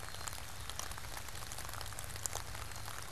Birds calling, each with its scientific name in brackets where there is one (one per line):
Black-capped Chickadee (Poecile atricapillus)